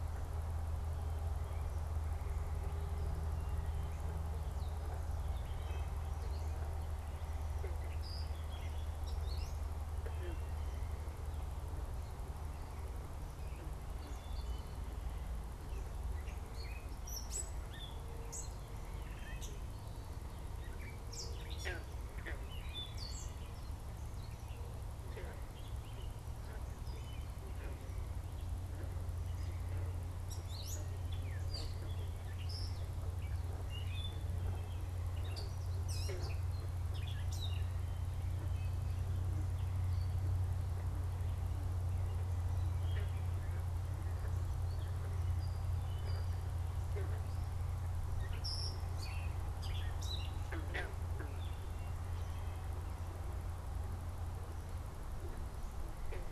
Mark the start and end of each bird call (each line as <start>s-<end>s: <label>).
5.4s-6.0s: Wood Thrush (Hylocichla mustelina)
8.0s-9.8s: Gray Catbird (Dumetella carolinensis)
10.0s-10.9s: Wood Thrush (Hylocichla mustelina)
16.2s-37.8s: Gray Catbird (Dumetella carolinensis)
42.7s-52.0s: Gray Catbird (Dumetella carolinensis)